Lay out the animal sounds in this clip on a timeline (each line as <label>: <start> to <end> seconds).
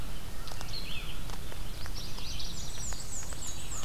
American Crow (Corvus brachyrhynchos): 0.0 to 1.2 seconds
Red-eyed Vireo (Vireo olivaceus): 0.0 to 3.8 seconds
Yellow-rumped Warbler (Setophaga coronata): 1.5 to 2.9 seconds
Black-throated Green Warbler (Setophaga virens): 1.9 to 3.2 seconds
Black-and-white Warbler (Mniotilta varia): 2.3 to 3.8 seconds